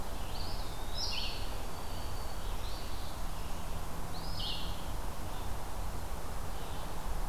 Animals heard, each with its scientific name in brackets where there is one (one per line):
Black-throated Green Warbler (Setophaga virens)
Red-eyed Vireo (Vireo olivaceus)
Eastern Phoebe (Sayornis phoebe)
Eastern Wood-Pewee (Contopus virens)